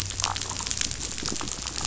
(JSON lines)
{"label": "biophony, damselfish", "recorder": "SoundTrap 500"}